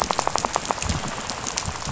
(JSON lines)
{"label": "biophony, rattle", "recorder": "SoundTrap 500"}